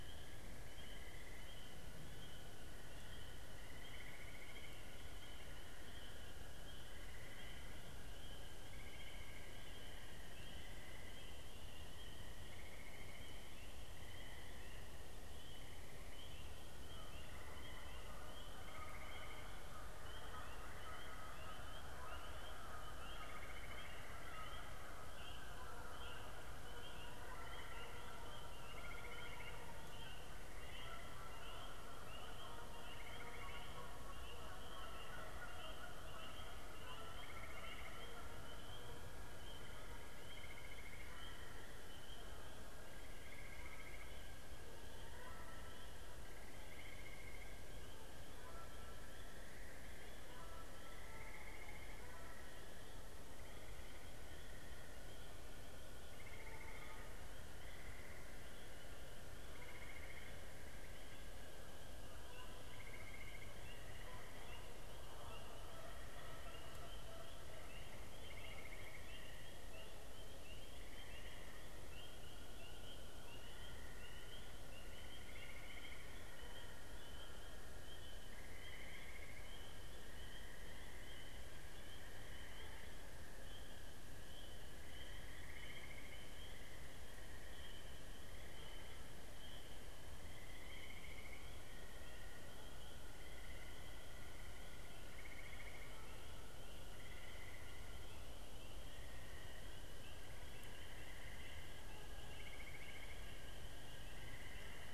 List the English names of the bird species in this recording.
Canada Goose